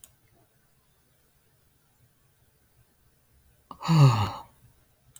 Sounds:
Sigh